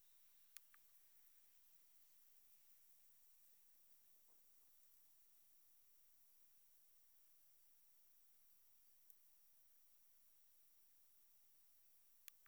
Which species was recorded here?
Metrioptera saussuriana